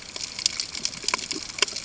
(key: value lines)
label: ambient
recorder: HydroMoth